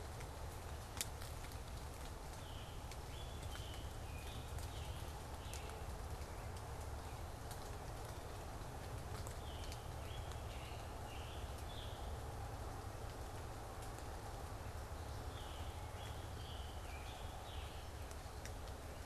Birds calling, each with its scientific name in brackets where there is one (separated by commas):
Scarlet Tanager (Piranga olivacea)